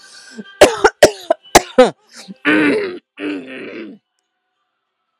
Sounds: Throat clearing